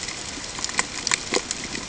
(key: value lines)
label: ambient
recorder: HydroMoth